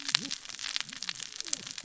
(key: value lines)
label: biophony, cascading saw
recorder: SoundTrap 600 or HydroMoth